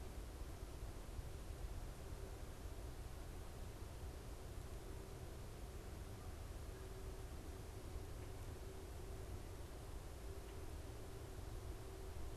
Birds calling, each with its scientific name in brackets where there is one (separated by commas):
Red-winged Blackbird (Agelaius phoeniceus)